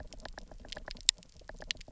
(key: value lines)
label: biophony, knock
recorder: SoundTrap 300